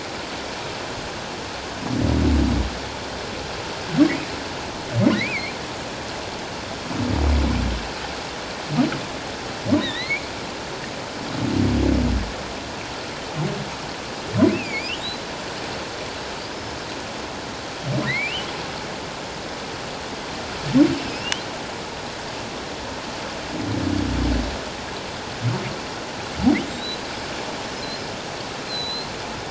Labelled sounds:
5.1	5.5	humpback whale, 1.8 to 2.6 kHz
9.8	10.3	humpback whale, 1.7 to 4.5 kHz
14.5	14.9	humpback whale, 2.1 to 2.8 kHz
16.4	16.8	humpback whale, 4.6 to 5.3 kHz
18.1	18.5	humpback whale, 1.8 to 3.3 kHz
21.0	21.3	humpback whale, 5.0 to 5.5 kHz
26.7	27.0	humpback whale, 3.6 to 4.1 kHz
28.7	29.1	humpback whale, 3.9 to 4.2 kHz

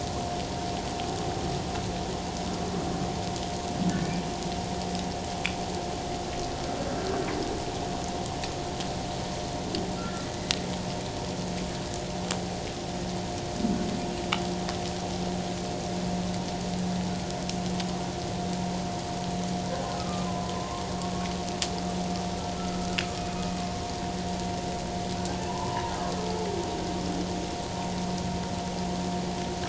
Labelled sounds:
10.0	10.3	humpback whale, 1.3 to 1.5 kHz
19.9	20.9	humpback whale, 0.94 to 1.3 kHz
25.5	26.4	humpback whale, 0.81 to 1.4 kHz

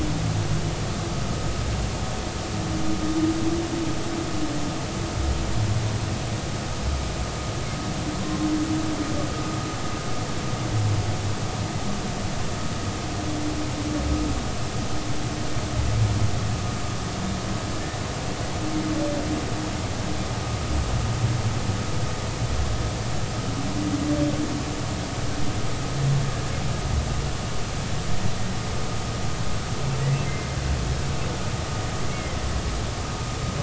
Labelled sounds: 32.1	32.4	humpback whale, 2.0 to 2.3 kHz

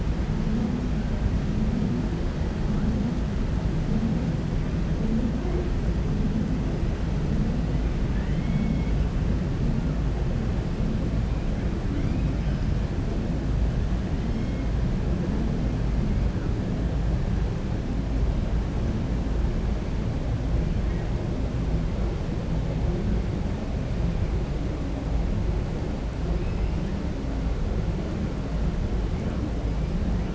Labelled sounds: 8.1	9.0	killer whale, 1.6 to 3.2 kHz

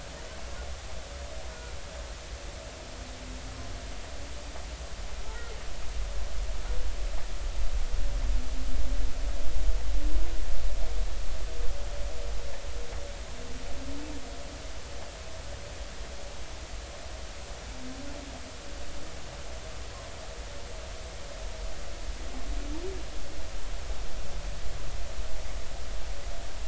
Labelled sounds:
5.2	5.5	humpback whale, 1.3 to 1.5 kHz

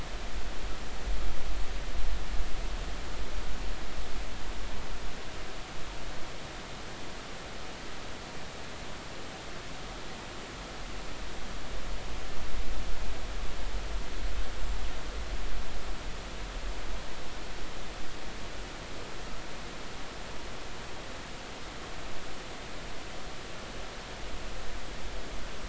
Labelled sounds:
14.5	14.8	killer whale, northern resident, 7.2 to 7.5 kHz

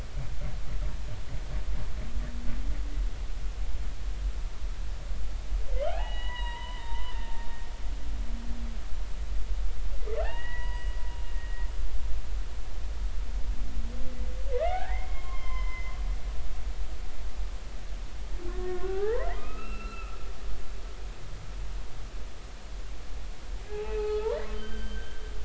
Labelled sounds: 5.9	7.1	humpback whale, 0.80 to 4.0 kHz
10.2	11.0	humpback whale, 0.80 to 3.9 kHz
11.4	11.7	humpback whale, 1.8 to 1.9 kHz
14.5	15.9	humpback whale, 0.80 to 5.3 kHz
18.5	20.2	humpback whale, 0.80 to 2.8 kHz
23.7	25.2	humpback whale, 0.80 to 3.2 kHz

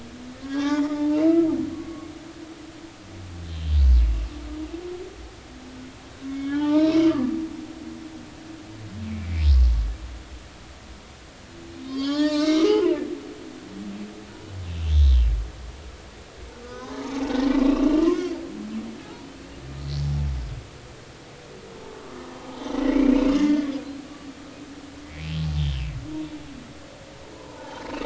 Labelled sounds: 0.4	1.2	humpback whale, 0.80 to 3.8 kHz
1.7	2.1	humpback whale, 0.99 to 1.2 kHz
6.3	7.3	humpback whale, 0.83 to 4.2 kHz
11.8	12.9	humpback whale, 0.80 to 5.5 kHz
14.7	14.9	humpback whale, 2.5 to 2.8 kHz
16.6	18.1	humpback whale, 0.80 to 3.1 kHz
22.4	22.7	humpback whale, 0.80 to 0.96 kHz
23.4	23.8	humpback whale, 1.7 to 3.5 kHz
25.0	25.8	humpback whale, 1.9 to 3.5 kHz
27.3	27.8	humpback whale, 0.80 to 1.1 kHz

